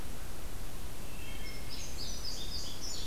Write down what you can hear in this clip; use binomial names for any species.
Vireo olivaceus, Hylocichla mustelina, Passerina cyanea